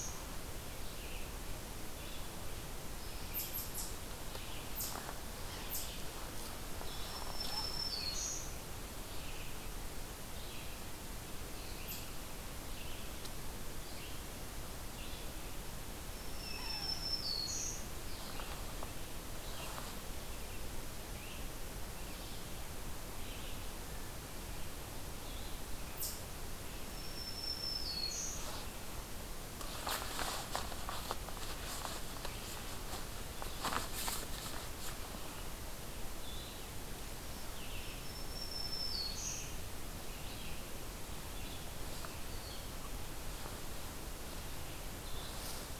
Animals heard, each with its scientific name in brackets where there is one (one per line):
Eastern Chipmunk (Tamias striatus)
Yellow-bellied Sapsucker (Sphyrapicus varius)
Red-eyed Vireo (Vireo olivaceus)
Black-throated Green Warbler (Setophaga virens)